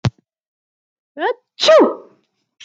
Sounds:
Sneeze